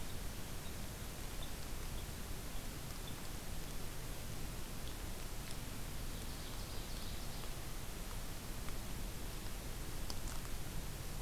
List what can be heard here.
Red Crossbill, Ovenbird